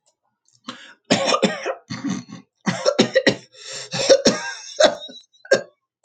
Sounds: Throat clearing